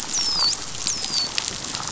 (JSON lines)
{"label": "biophony, dolphin", "recorder": "SoundTrap 500"}